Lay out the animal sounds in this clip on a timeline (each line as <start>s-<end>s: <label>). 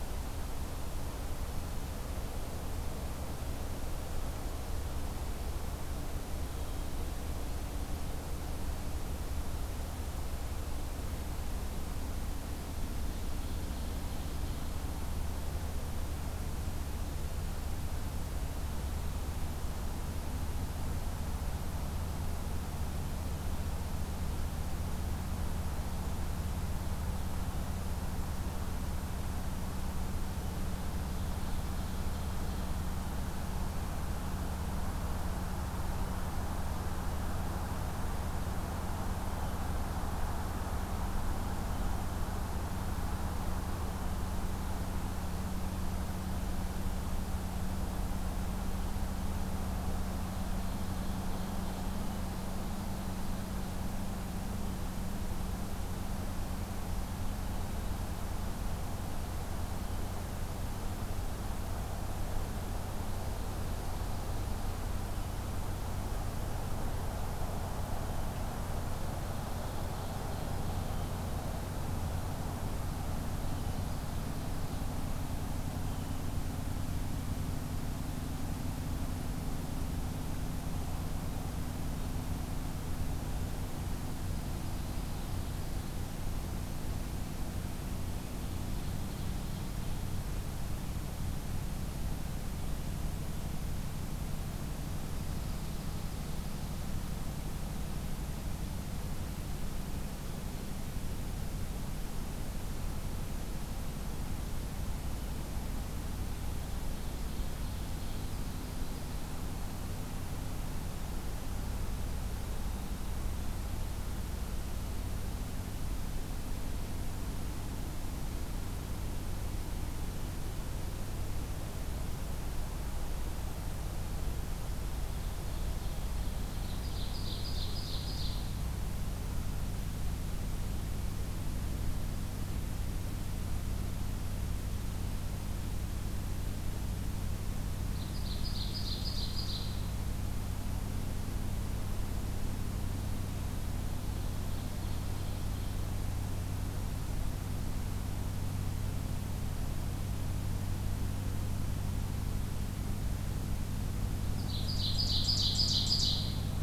13.1s-14.8s: Ovenbird (Seiurus aurocapilla)
30.7s-32.6s: Ovenbird (Seiurus aurocapilla)
50.1s-53.9s: Ovenbird (Seiurus aurocapilla)
62.7s-64.9s: Ovenbird (Seiurus aurocapilla)
68.8s-71.2s: Ovenbird (Seiurus aurocapilla)
73.2s-75.1s: Ovenbird (Seiurus aurocapilla)
84.1s-86.1s: Ovenbird (Seiurus aurocapilla)
88.4s-90.4s: Ovenbird (Seiurus aurocapilla)
95.0s-96.9s: Ovenbird (Seiurus aurocapilla)
106.4s-109.5s: Ovenbird (Seiurus aurocapilla)
125.3s-128.6s: Ovenbird (Seiurus aurocapilla)
137.9s-140.0s: Ovenbird (Seiurus aurocapilla)
144.0s-146.0s: Ovenbird (Seiurus aurocapilla)
154.3s-156.4s: Ovenbird (Seiurus aurocapilla)